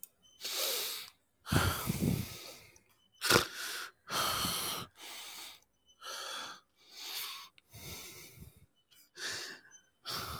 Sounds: Sigh